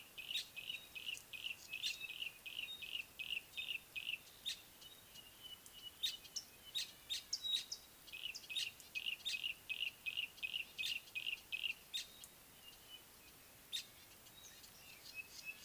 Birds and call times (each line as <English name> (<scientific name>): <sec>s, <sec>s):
Yellow-breasted Apalis (Apalis flavida): 1.1s, 4.1s, 10.2s
Village Weaver (Ploceus cucullatus): 7.2s, 13.8s
Pygmy Batis (Batis perkeo): 7.5s